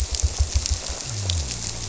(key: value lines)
label: biophony
recorder: SoundTrap 300